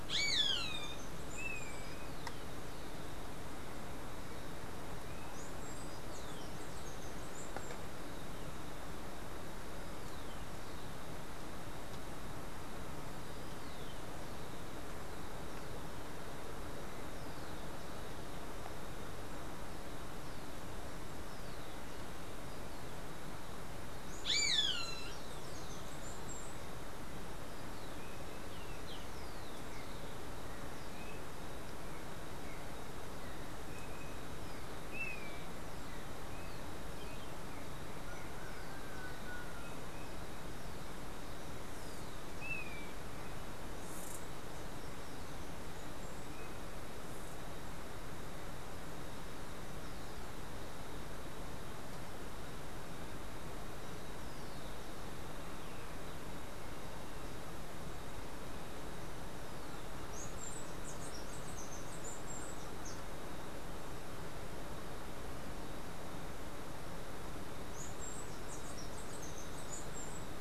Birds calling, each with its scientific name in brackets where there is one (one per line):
Steely-vented Hummingbird (Saucerottia saucerottei)
Roadside Hawk (Rupornis magnirostris)
Golden-faced Tyrannulet (Zimmerius chrysops)